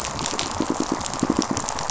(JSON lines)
{"label": "biophony, pulse", "recorder": "SoundTrap 500"}